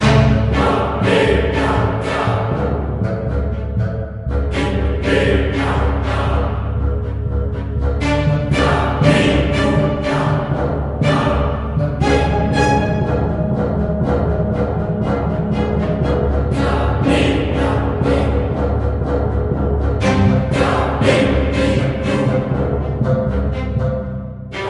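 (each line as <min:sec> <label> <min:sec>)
0:00.0 An orchestra with strings, bassoons, and timpani plays a modern, harsh, and forceful piece. 0:24.7
0:00.5 A choir sings single syllables in a very forceful manner. 0:02.5
0:04.4 A choir sings single syllables in a very forceful manner. 0:06.5
0:08.5 A choir sings single syllables in a very forceful manner. 0:10.6
0:16.5 A choir sings single syllables in a very forceful manner. 0:18.6
0:20.5 A choir sings single syllables in a very forceful manner. 0:22.7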